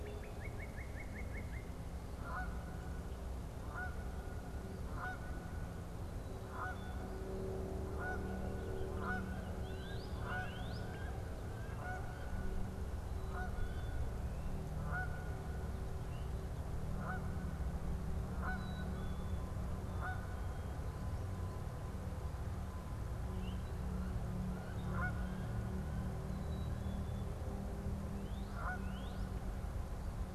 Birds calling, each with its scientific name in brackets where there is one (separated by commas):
Canada Goose (Branta canadensis), Northern Cardinal (Cardinalis cardinalis), Black-capped Chickadee (Poecile atricapillus), Wood Duck (Aix sponsa)